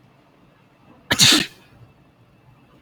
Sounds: Sneeze